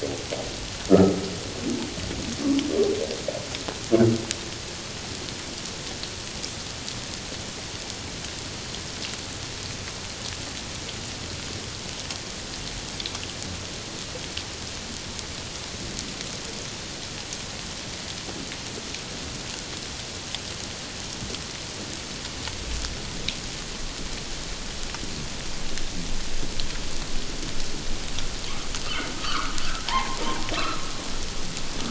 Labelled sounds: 0.9	1.2	humpback whale, 1.2 to 1.4 kHz
29.2	29.6	humpback whale, 1.0 to 1.6 kHz
29.9	30.2	humpback whale, 0.78 to 1.1 kHz

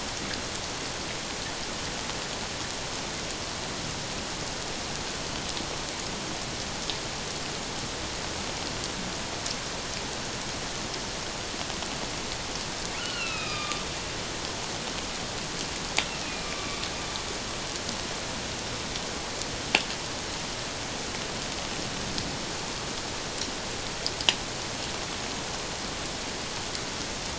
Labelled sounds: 13.0	13.8	killer whale, northern resident, A clan, AA subclan, call N04, 1.1 to 4.4 kHz
16.2	16.8	killer whale, northern resident, A clan, AA subclan, call N04, 1.1 to 2.6 kHz

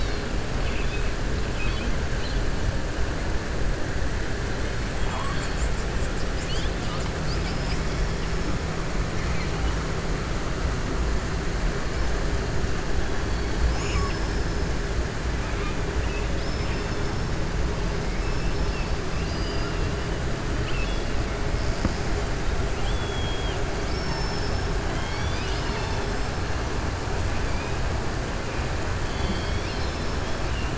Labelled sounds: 0.5	1.1	killer whale, southern resident, 2.1 to 3.8 kHz
1.5	1.9	killer whale, southern resident, 2.1 to 4.6 kHz
5.0	5.5	killer whale, southern resident, 0.66 to 4.8 kHz
7.1	8.2	killer whale, southern resident, 4.4 to 5.8 kHz
16.3	17.3	killer whale, southern resident, 3.9 to 5.5 kHz
19.1	19.8	killer whale, southern resident, 2.8 to 5.8 kHz
20.5	21.1	killer whale, southern resident, 2.5 to 5.2 kHz
22.7	24.7	killer whale, southern resident, 2.3 to 6.4 kHz
29.0	30.2	killer whale, southern resident, 2.2 to 5.7 kHz

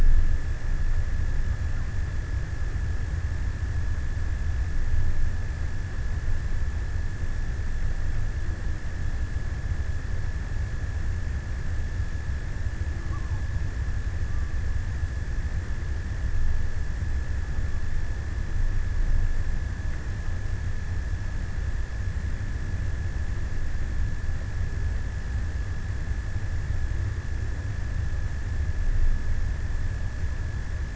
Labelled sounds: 12.5	14.6	killer whale, offshore, 0.17 to 1.4 kHz

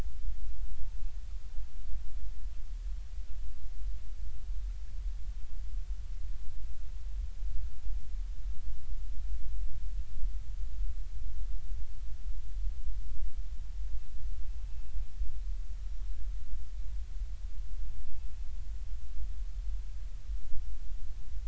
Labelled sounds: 14.6	14.8	killer whale, northern resident, G clan, 2.6 to 2.7 kHz

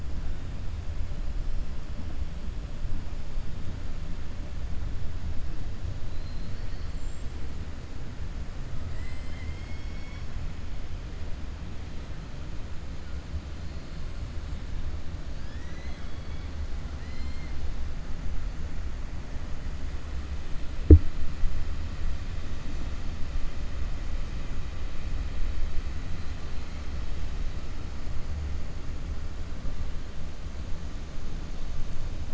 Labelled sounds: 6.0	7.0	killer whale, 3.7 to 4.8 kHz
8.8	10.3	killer whale, 1.3 to 8.0 kHz
15.3	16.5	killer whale, 1.6 to 6.1 kHz
16.9	17.5	killer whale, 1.9 to 5.2 kHz

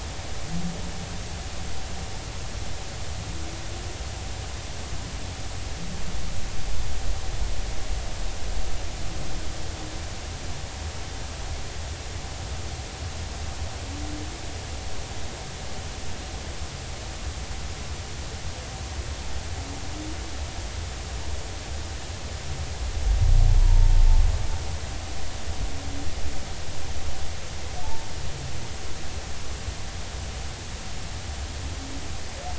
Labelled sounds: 23.6	23.9	humpback whale, 0.86 to 0.99 kHz
27.8	28.1	humpback whale, 0.83 to 0.96 kHz

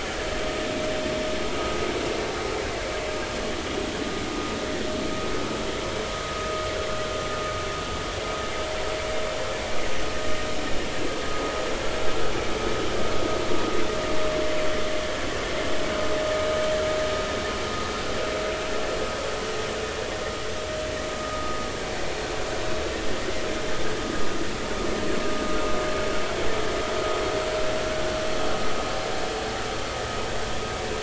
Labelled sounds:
21.2	21.6	vessel noise, 1.2 to 1.3 kHz

